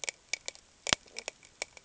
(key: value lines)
label: ambient
recorder: HydroMoth